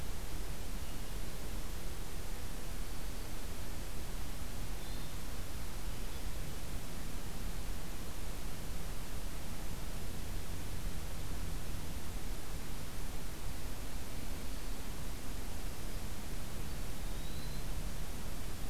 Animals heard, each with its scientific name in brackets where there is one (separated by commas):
Hermit Thrush (Catharus guttatus), Eastern Wood-Pewee (Contopus virens)